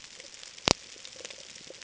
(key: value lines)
label: ambient
recorder: HydroMoth